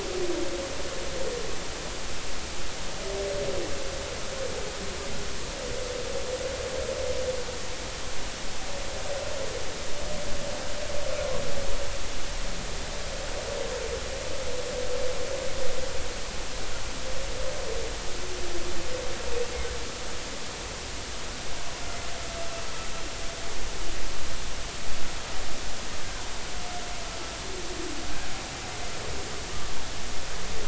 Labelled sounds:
29.5	29.8	humpback whale, 1.1 to 1.2 kHz

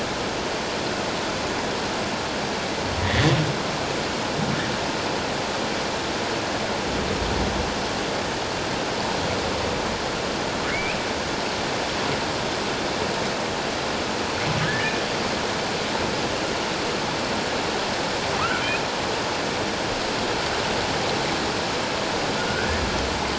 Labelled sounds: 3.0	3.3	humpback whale, 1.7 to 2.0 kHz
10.7	11.0	humpback whale, 1.9 to 2.7 kHz
14.6	14.9	humpback whale, 1.5 to 1.8 kHz
22.4	22.7	humpback whale, 1.4 to 1.7 kHz

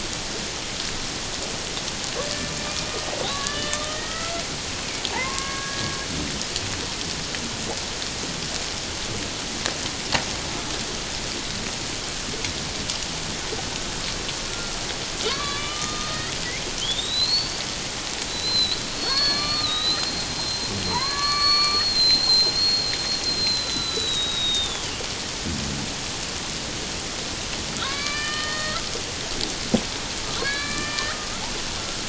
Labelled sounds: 3.3	4.4	killer whale, Bigg's (transient), 1.1 to 3.7 kHz
5.1	6.0	killer whale, Bigg's (transient), 0.78 to 1.7 kHz
14.4	14.8	killer whale, Bigg's (transient), 1.3 to 1.4 kHz
15.2	16.3	killer whale, Bigg's (transient), 0.94 to 4.4 kHz
16.8	17.6	killer whale, Bigg's (transient), 2.9 to 4.8 kHz
18.3	22.9	killer whale, Bigg's (transient), 0.84 to 4.6 kHz
23.3	24.9	killer whale, Bigg's (transient), 1.2 to 4.2 kHz
27.8	28.8	killer whale, Bigg's (transient), 0.97 to 4.9 kHz
30.4	31.2	killer whale, Bigg's (transient), 0.97 to 4.8 kHz

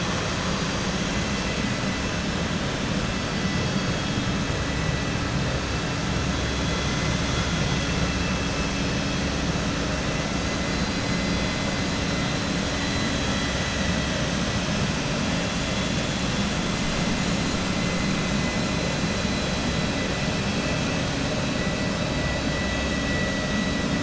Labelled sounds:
12.7	14.1	vessel noise, 1.9 to 4.7 kHz

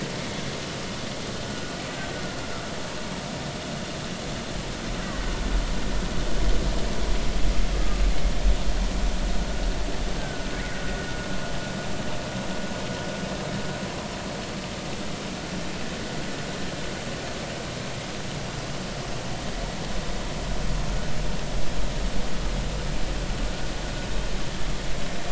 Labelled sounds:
1.9	2.2	killer whale, Bigg's (transient), 1.4 to 1.6 kHz
10.2	10.5	killer whale, Bigg's (transient), 1.4 to 1.6 kHz

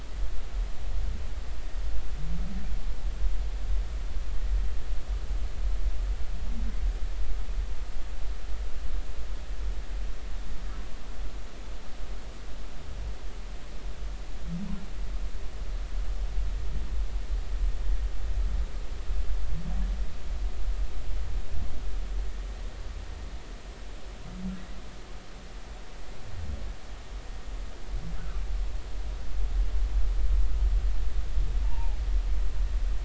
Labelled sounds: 31.6	32.0	humpback whale, 0.80 to 0.99 kHz

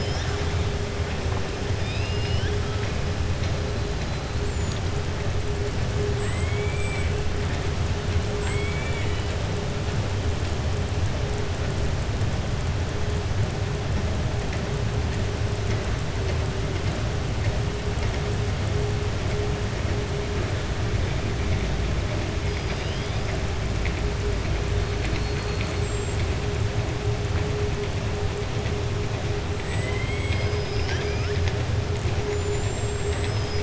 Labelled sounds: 1.7	2.6	killer whale, southern resident, 1.6 to 5.5 kHz
6.2	7.1	killer whale, southern resident, 1.1 to 3.2 kHz
8.3	9.3	killer whale, southern resident, 1.0 to 8.0 kHz

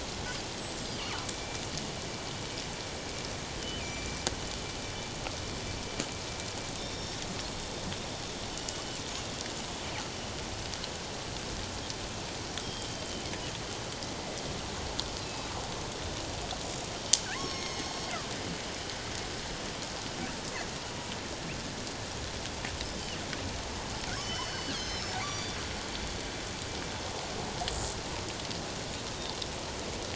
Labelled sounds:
0.5	0.8	killer whale, northern resident, G clan, 7.5 to 8.0 kHz
1.3	1.6	killer whale, northern resident, G clan, 2.3 to 2.4 kHz
3.6	4.2	killer whale, northern resident, G clan, 2.3 to 7.1 kHz
6.8	7.2	killer whale, northern resident, G clan, 3.5 to 5.5 kHz
8.5	9.0	killer whale, northern resident, G clan, 2.9 to 7.5 kHz
12.6	13.0	killer whale, northern resident, G clan, 3.1 to 4.9 kHz
17.4	18.1	killer whale, northern resident, G clan, 1.0 to 6.6 kHz
24.1	25.6	killer whale, northern resident, G clan, 2.8 to 6.6 kHz
29.1	29.4	killer whale, northern resident, G clan, 3.6 to 3.8 kHz

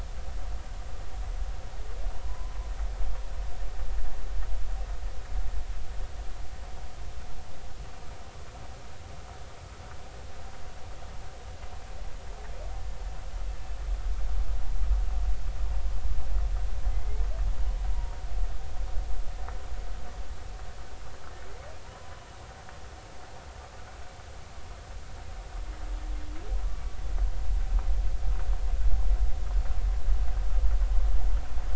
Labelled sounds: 2.2	2.5	humpback whale, 0.96 to 1.1 kHz
16.9	17.3	humpback whale, 2.0 to 2.3 kHz
17.9	18.2	humpback whale, 0.90 to 0.99 kHz
21.9	22.2	humpback whale, 0.90 to 1.1 kHz

